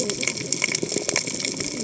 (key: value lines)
label: biophony, cascading saw
recorder: HydroMoth